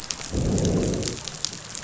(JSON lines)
{"label": "biophony, growl", "recorder": "SoundTrap 500"}